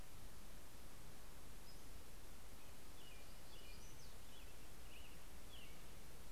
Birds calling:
Brown-headed Cowbird (Molothrus ater), Black-throated Gray Warbler (Setophaga nigrescens), American Robin (Turdus migratorius)

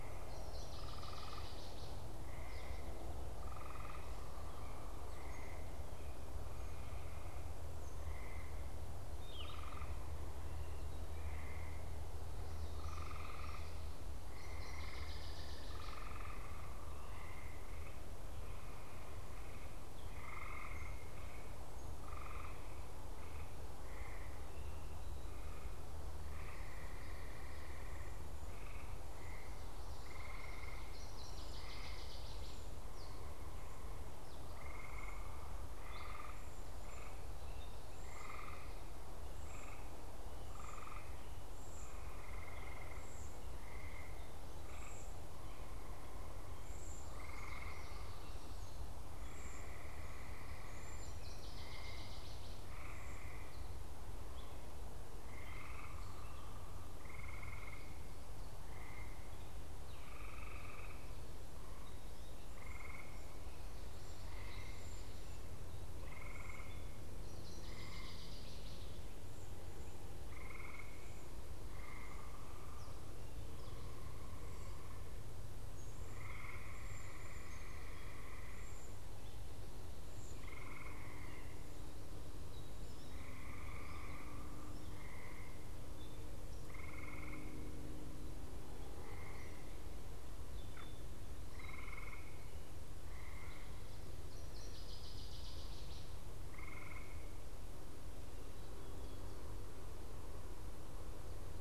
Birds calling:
Cedar Waxwing (Bombycilla cedrorum), Northern Waterthrush (Parkesia noveboracensis), Gray Catbird (Dumetella carolinensis), Yellow-throated Vireo (Vireo flavifrons)

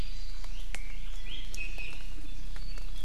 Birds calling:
Iiwi (Drepanis coccinea)

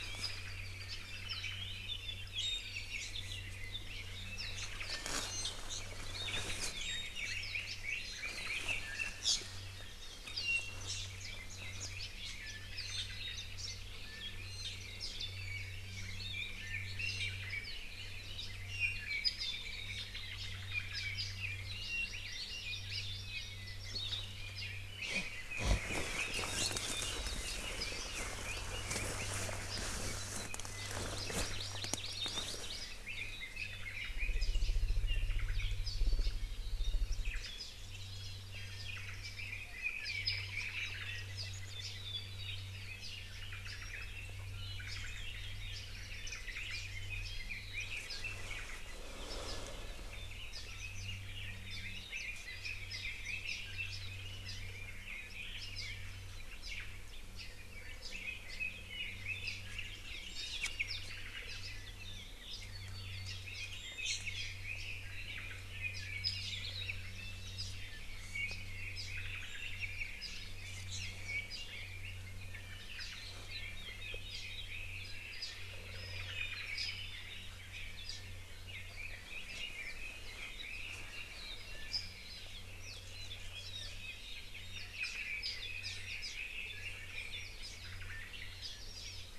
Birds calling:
Iiwi (Drepanis coccinea), Red-billed Leiothrix (Leiothrix lutea), Hawaii Creeper (Loxops mana), Warbling White-eye (Zosterops japonicus), Apapane (Himatione sanguinea), Hawaii Amakihi (Chlorodrepanis virens), Omao (Myadestes obscurus)

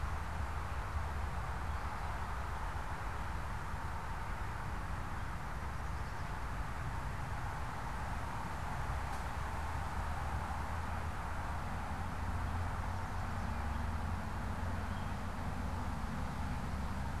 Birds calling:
Chestnut-sided Warbler (Setophaga pensylvanica)

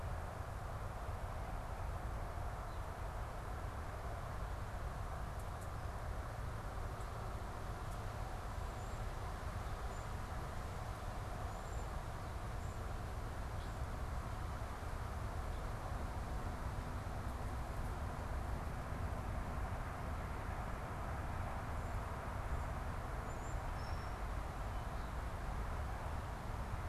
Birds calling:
European Starling (Sturnus vulgaris)

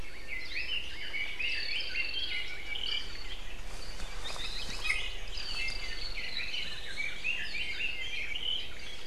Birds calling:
Red-billed Leiothrix (Leiothrix lutea), Iiwi (Drepanis coccinea), Hawaii Akepa (Loxops coccineus), Apapane (Himatione sanguinea)

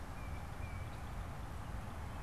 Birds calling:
Tufted Titmouse (Baeolophus bicolor)

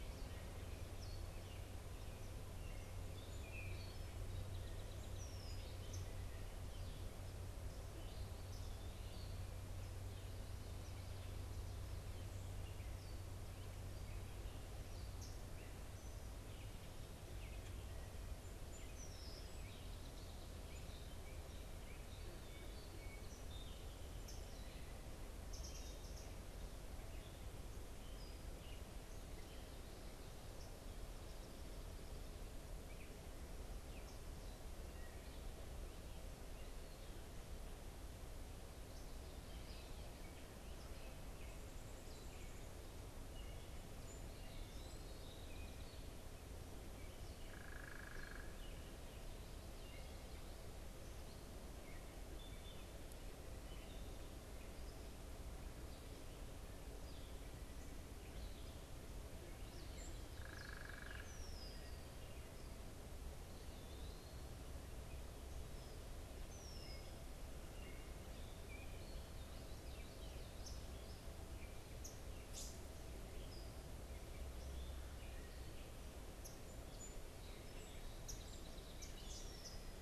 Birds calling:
Eastern Wood-Pewee (Contopus virens), unidentified bird, Red-winged Blackbird (Agelaius phoeniceus), Gray Catbird (Dumetella carolinensis), Song Sparrow (Melospiza melodia)

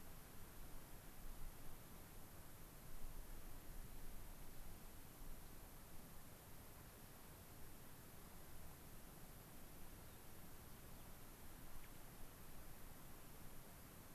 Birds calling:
Gray-crowned Rosy-Finch (Leucosticte tephrocotis), unidentified bird

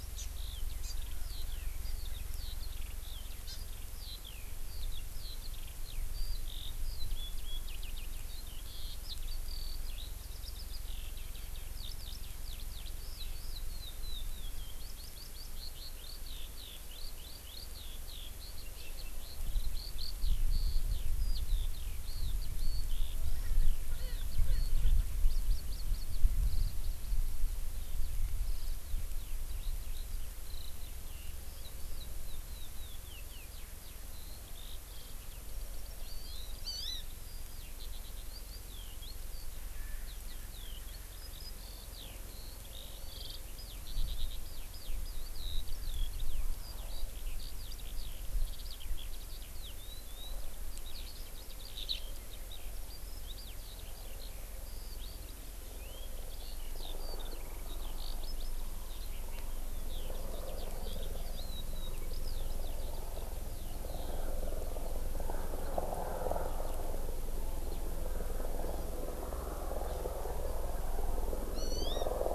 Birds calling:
Erckel's Francolin (Pternistis erckelii), Eurasian Skylark (Alauda arvensis), Hawaii Amakihi (Chlorodrepanis virens)

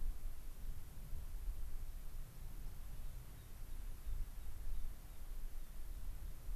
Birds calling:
American Pipit (Anthus rubescens)

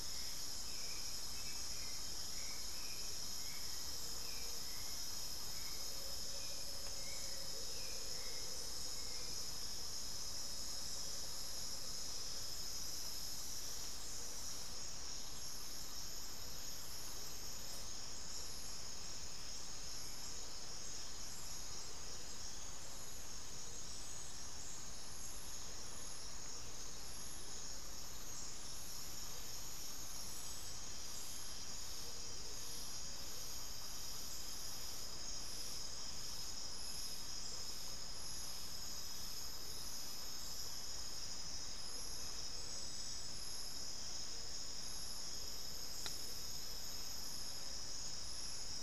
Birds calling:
Hauxwell's Thrush (Turdus hauxwelli), Amazonian Motmot (Momotus momota), Gray-fronted Dove (Leptotila rufaxilla)

